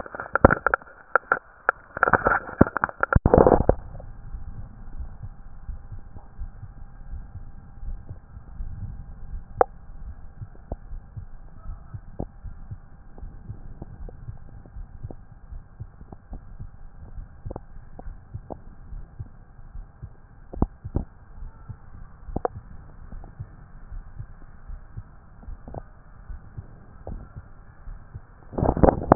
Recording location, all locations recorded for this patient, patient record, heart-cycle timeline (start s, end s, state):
aortic valve (AV)
aortic valve (AV)+pulmonary valve (PV)+tricuspid valve (TV)+mitral valve (MV)
#Age: Adolescent
#Sex: Male
#Height: 180.0 cm
#Weight: 103.3 kg
#Pregnancy status: False
#Murmur: Present
#Murmur locations: mitral valve (MV)+pulmonary valve (PV)+tricuspid valve (TV)
#Most audible location: tricuspid valve (TV)
#Systolic murmur timing: Holosystolic
#Systolic murmur shape: Plateau
#Systolic murmur grading: I/VI
#Systolic murmur pitch: Low
#Systolic murmur quality: Blowing
#Diastolic murmur timing: nan
#Diastolic murmur shape: nan
#Diastolic murmur grading: nan
#Diastolic murmur pitch: nan
#Diastolic murmur quality: nan
#Outcome: Abnormal
#Campaign: 2014 screening campaign
0.00	4.30	unannotated
4.30	4.42	S1
4.42	4.56	systole
4.56	4.66	S2
4.66	4.96	diastole
4.96	5.10	S1
5.10	5.22	systole
5.22	5.32	S2
5.32	5.68	diastole
5.68	5.80	S1
5.80	5.92	systole
5.92	6.02	S2
6.02	6.40	diastole
6.40	6.50	S1
6.50	6.62	systole
6.62	6.72	S2
6.72	7.10	diastole
7.10	7.24	S1
7.24	7.36	systole
7.36	7.46	S2
7.46	7.84	diastole
7.84	7.98	S1
7.98	8.10	systole
8.10	8.18	S2
8.18	8.58	diastole
8.58	8.72	S1
8.72	8.86	systole
8.86	8.98	S2
8.98	9.30	diastole
9.30	9.42	S1
9.42	9.56	systole
9.56	9.66	S2
9.66	10.02	diastole
10.02	10.16	S1
10.16	10.40	systole
10.40	10.50	S2
10.50	10.90	diastole
10.90	11.02	S1
11.02	11.16	systole
11.16	11.26	S2
11.26	11.66	diastole
11.66	11.78	S1
11.78	11.94	systole
11.94	12.02	S2
12.02	12.44	diastole
12.44	12.56	S1
12.56	12.70	systole
12.70	12.80	S2
12.80	13.20	diastole
13.20	13.32	S1
13.32	13.48	systole
13.48	13.58	S2
13.58	14.00	diastole
14.00	14.12	S1
14.12	14.26	systole
14.26	14.36	S2
14.36	14.76	diastole
14.76	14.88	S1
14.88	15.02	systole
15.02	15.12	S2
15.12	15.52	diastole
15.52	15.62	S1
15.62	15.80	systole
15.80	15.90	S2
15.90	16.30	diastole
16.30	16.42	S1
16.42	16.60	systole
16.60	16.68	S2
16.68	17.16	diastole
17.16	17.28	S1
17.28	17.46	systole
17.46	17.58	S2
17.58	18.06	diastole
18.06	18.16	S1
18.16	18.34	systole
18.34	18.42	S2
18.42	18.92	diastole
18.92	19.04	S1
19.04	19.20	systole
19.20	19.28	S2
19.28	19.74	diastole
19.74	19.86	S1
19.86	20.02	systole
20.02	20.10	S2
20.10	20.54	diastole
20.54	29.15	unannotated